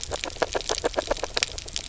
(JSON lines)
{"label": "biophony, grazing", "recorder": "SoundTrap 300"}